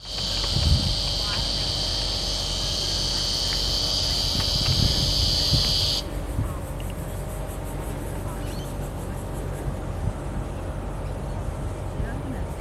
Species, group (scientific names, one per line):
Psaltoda plaga
Cicadidae